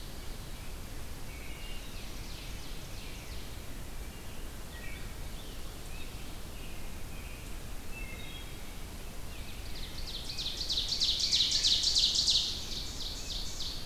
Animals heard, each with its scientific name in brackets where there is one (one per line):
Ovenbird (Seiurus aurocapilla)
Wood Thrush (Hylocichla mustelina)
Scarlet Tanager (Piranga olivacea)
Rose-breasted Grosbeak (Pheucticus ludovicianus)
American Robin (Turdus migratorius)